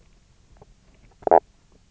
{"label": "biophony, knock croak", "recorder": "SoundTrap 300"}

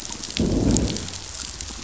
{"label": "biophony, growl", "recorder": "SoundTrap 500"}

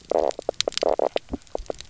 {"label": "biophony, knock croak", "recorder": "SoundTrap 300"}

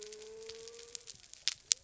{"label": "biophony", "recorder": "SoundTrap 300"}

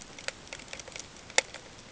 {"label": "ambient", "recorder": "HydroMoth"}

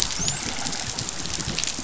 {"label": "biophony, dolphin", "recorder": "SoundTrap 500"}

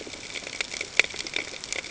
{"label": "ambient", "recorder": "HydroMoth"}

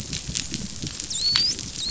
{"label": "biophony, dolphin", "recorder": "SoundTrap 500"}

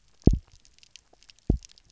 {"label": "biophony, double pulse", "recorder": "SoundTrap 300"}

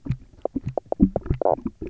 {"label": "biophony", "recorder": "SoundTrap 300"}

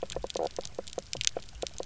{"label": "biophony, knock croak", "recorder": "SoundTrap 300"}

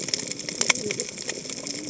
{"label": "biophony, cascading saw", "recorder": "HydroMoth"}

